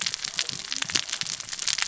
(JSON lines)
{"label": "biophony, cascading saw", "recorder": "SoundTrap 600 or HydroMoth"}